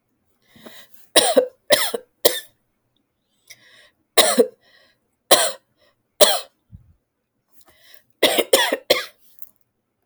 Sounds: Cough